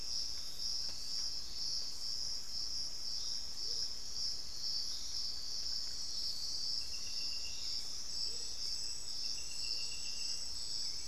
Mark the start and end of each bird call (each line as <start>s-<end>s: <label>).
3.4s-4.0s: Amazonian Motmot (Momotus momota)
7.3s-11.1s: Hauxwell's Thrush (Turdus hauxwelli)
8.1s-10.1s: Amazonian Motmot (Momotus momota)